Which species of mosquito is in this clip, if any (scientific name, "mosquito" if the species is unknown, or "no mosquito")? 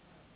Anopheles gambiae s.s.